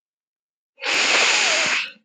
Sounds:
Sniff